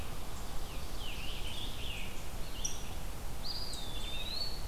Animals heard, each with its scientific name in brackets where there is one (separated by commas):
Eastern Wood-Pewee (Contopus virens), Red-eyed Vireo (Vireo olivaceus), Rose-breasted Grosbeak (Pheucticus ludovicianus), Scarlet Tanager (Piranga olivacea)